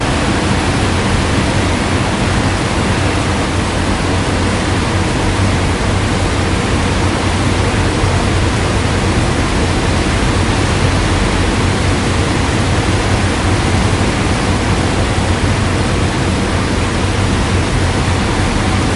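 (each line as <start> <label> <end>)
0.0 A continuous loud noise in the background. 19.0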